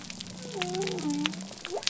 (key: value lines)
label: biophony
recorder: SoundTrap 300